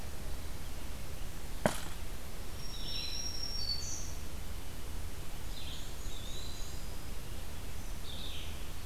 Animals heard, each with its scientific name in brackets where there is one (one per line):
Black-and-white Warbler (Mniotilta varia)
Black-throated Green Warbler (Setophaga virens)
Eastern Wood-Pewee (Contopus virens)
Red-eyed Vireo (Vireo olivaceus)